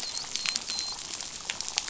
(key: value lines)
label: biophony, dolphin
recorder: SoundTrap 500